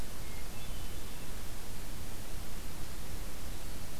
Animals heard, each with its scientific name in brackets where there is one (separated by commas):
Hermit Thrush (Catharus guttatus)